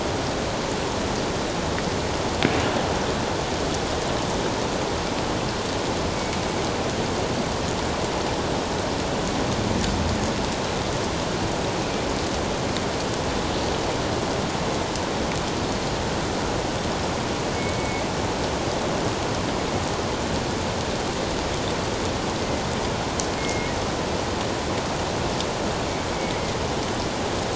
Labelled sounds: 6.1	6.4	killer whale, northern resident, G clan, 2.2 to 2.3 kHz
17.6	18.0	killer whale, northern resident, G clan, 2.1 to 2.3 kHz
23.4	23.7	killer whale, northern resident, G clan, 2.1 to 2.2 kHz

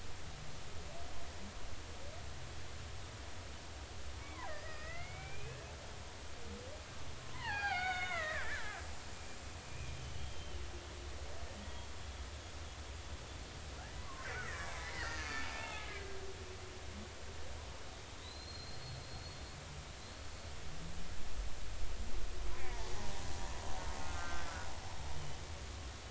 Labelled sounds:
4.2	5.6	killer whale, Bigg's (transient), 1.2 to 5.2 kHz
7.2	8.8	killer whale, Bigg's (transient), 0.80 to 6.8 kHz
9.7	10.6	killer whale, Bigg's (transient), 2.4 to 3.3 kHz
11.6	11.9	killer whale, Bigg's (transient), 3.2 to 3.4 kHz
14.0	16.2	killer whale, Bigg's (transient), 0.80 to 4.4 kHz
18.2	19.4	killer whale, Bigg's (transient), 3.5 to 4.4 kHz
22.6	22.9	killer whale, Bigg's (transient), 1.7 to 2.5 kHz
24.0	24.5	killer whale, Bigg's (transient), 1.2 to 1.6 kHz

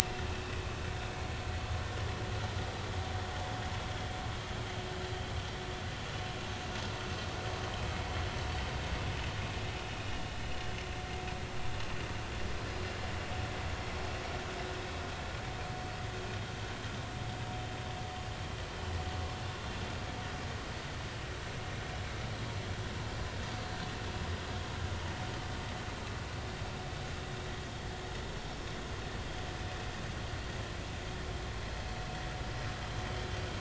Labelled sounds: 10.1	10.3	vessel noise, 2.8 to 2.9 kHz

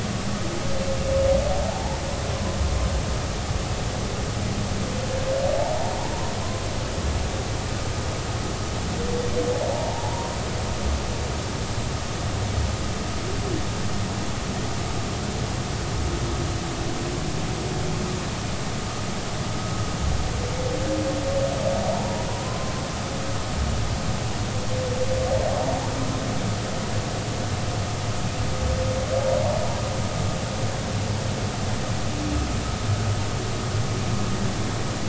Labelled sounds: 1.7	2.0	humpback whale, 0.80 to 0.99 kHz
9.7	10.3	humpback whale, 0.80 to 1.1 kHz
22.0	22.7	humpback whale, 0.90 to 1.1 kHz

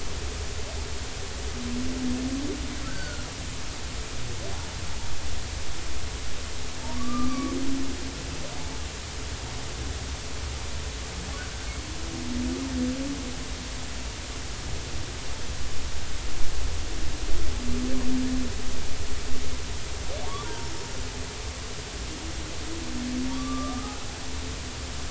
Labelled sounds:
2.8	3.2	humpback whale, 1.3 to 1.6 kHz
7.0	7.6	humpback whale, 1.0 to 1.3 kHz
20.4	20.7	humpback whale, 0.90 to 0.99 kHz
23.3	24.0	humpback whale, 1.1 to 1.3 kHz

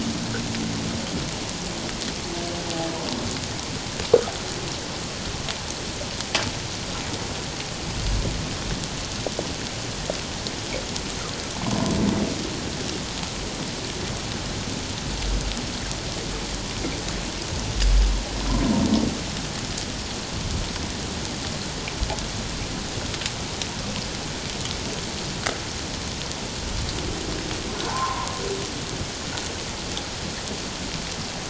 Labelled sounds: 27.8	28.3	humpback whale, 0.78 to 1.2 kHz

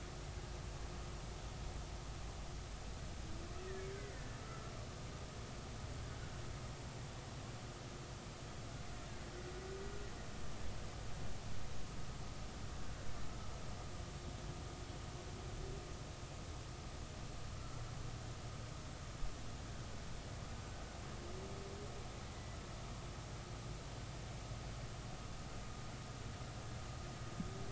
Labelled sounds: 3.9	4.7	killer whale, Bigg's (transient), 1.3 to 2.1 kHz
17.5	17.8	killer whale, Bigg's (transient), 1.3 to 1.4 kHz

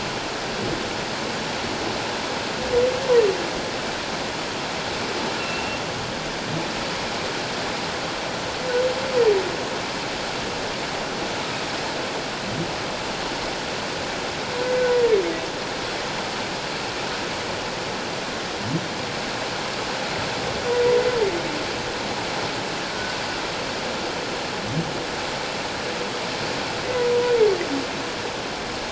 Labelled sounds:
5.4	5.8	humpback whale, 2.6 to 2.8 kHz
20.7	21.0	humpback whale, 1.9 to 2.1 kHz

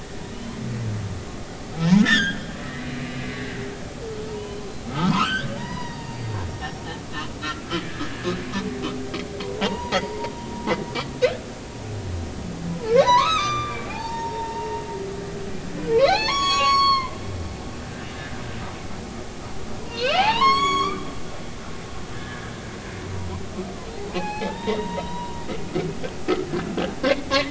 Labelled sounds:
0.3	0.6	humpback whale, 2.9 to 3.2 kHz
1.9	3.4	humpback whale, 1.2 to 6.8 kHz
4.3	7.3	humpback whale, 0.86 to 6.0 kHz
8.0	8.3	humpback whale, 1.6 to 1.8 kHz
9.6	10.3	humpback whale, 0.80 to 1.1 kHz
12.7	14.7	humpback whale, 0.80 to 6.7 kHz
16.0	17.2	humpback whale, 0.80 to 6.8 kHz
19.9	21.2	humpback whale, 0.80 to 7.9 kHz
22.1	22.5	humpback whale, 1.5 to 1.8 kHz
24.1	25.4	humpback whale, 0.80 to 3.9 kHz
27.0	27.3	humpback whale, 2.0 to 2.2 kHz

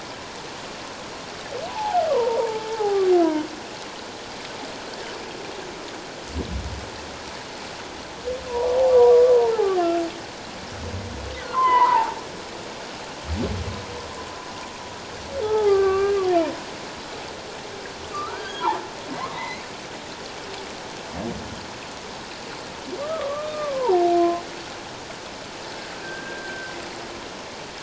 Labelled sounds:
1.7	3.0	humpback whale, 0.78 to 1.2 kHz
9.3	9.9	humpback whale, 0.78 to 1.4 kHz
11.4	12.2	humpback whale, 0.78 to 3.2 kHz
15.4	16.2	humpback whale, 0.78 to 2.4 kHz
18.1	18.9	humpback whale, 0.78 to 3.3 kHz
19.2	19.7	humpback whale, 0.81 to 2.4 kHz
23.0	24.4	humpback whale, 0.78 to 2.6 kHz
26.0	26.7	humpback whale, 1.5 to 1.7 kHz

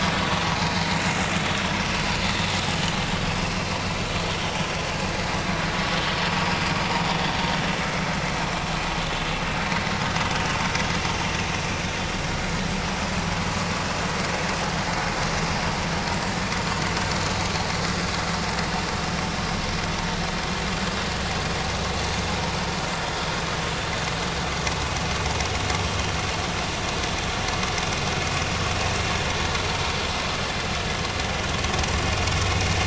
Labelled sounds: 1.2	1.5	vessel noise, 4.3 to 4.5 kHz

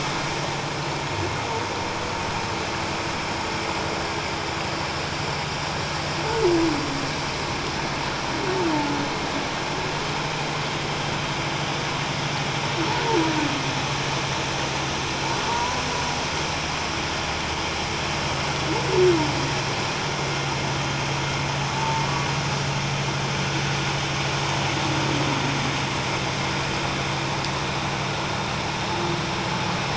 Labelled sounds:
15.5	15.8	humpback whale, 0.88 to 1.0 kHz
21.8	22.1	humpback whale, 0.84 to 0.94 kHz

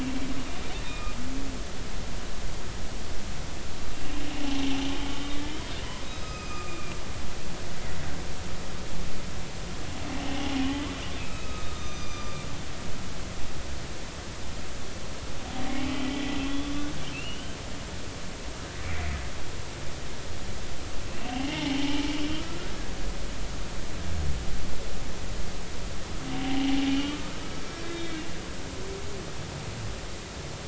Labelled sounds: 0.8	1.2	humpback whale, 1.2 to 2.6 kHz
6.0	7.0	humpback whale, 1.2 to 6.4 kHz
10.2	10.5	humpback whale, 2.7 to 3.1 kHz
11.2	12.4	humpback whale, 1.1 to 6.2 kHz
15.7	16.7	humpback whale, 1.9 to 3.5 kHz
17.1	17.5	humpback whale, 2.6 to 3.1 kHz
18.8	19.1	humpback whale, 1.8 to 2.5 kHz
21.1	22.7	humpback whale, 0.80 to 3.0 kHz
26.3	27.4	humpback whale, 0.80 to 3.2 kHz
27.8	28.2	humpback whale, 2.2 to 3.8 kHz

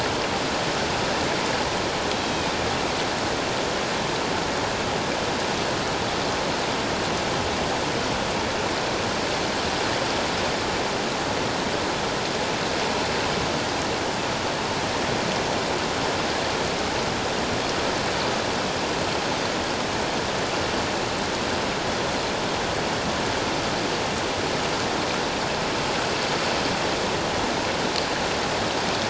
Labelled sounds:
2.2	2.6	Pacific white-sided dolphin, 3.0 to 3.9 kHz

